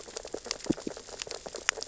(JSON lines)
{"label": "biophony, sea urchins (Echinidae)", "recorder": "SoundTrap 600 or HydroMoth"}